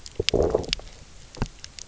{"label": "biophony, low growl", "recorder": "SoundTrap 300"}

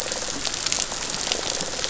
{"label": "biophony, rattle response", "recorder": "SoundTrap 500"}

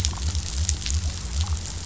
{"label": "biophony", "recorder": "SoundTrap 500"}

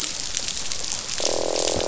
{"label": "biophony, croak", "recorder": "SoundTrap 500"}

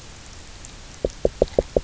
{"label": "biophony, knock", "recorder": "SoundTrap 300"}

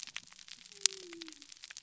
{"label": "biophony", "recorder": "SoundTrap 300"}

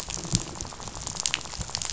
{"label": "biophony, rattle", "recorder": "SoundTrap 500"}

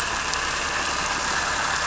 {"label": "anthrophony, boat engine", "recorder": "SoundTrap 300"}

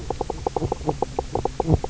{"label": "biophony, knock croak", "recorder": "SoundTrap 300"}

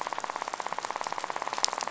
{"label": "biophony, rattle", "recorder": "SoundTrap 500"}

